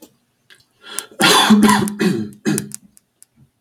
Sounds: Cough